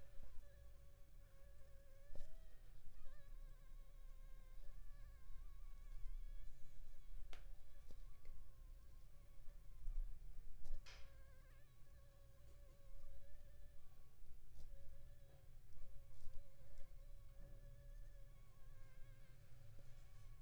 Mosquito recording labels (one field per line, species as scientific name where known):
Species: Anopheles funestus s.s.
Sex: female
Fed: unfed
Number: one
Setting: cup